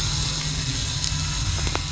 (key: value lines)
label: anthrophony, boat engine
recorder: SoundTrap 500